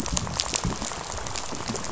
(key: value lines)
label: biophony, rattle
recorder: SoundTrap 500